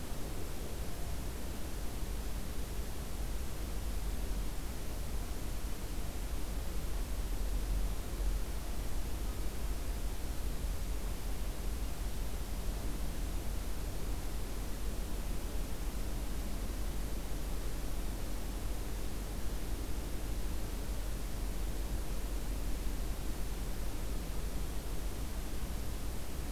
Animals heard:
forest ambience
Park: Acadia National Park